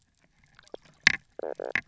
{"label": "biophony, knock croak", "recorder": "SoundTrap 300"}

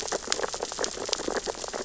{"label": "biophony, sea urchins (Echinidae)", "recorder": "SoundTrap 600 or HydroMoth"}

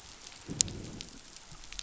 {"label": "biophony, growl", "recorder": "SoundTrap 500"}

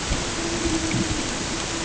{"label": "ambient", "recorder": "HydroMoth"}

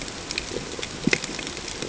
{"label": "ambient", "recorder": "HydroMoth"}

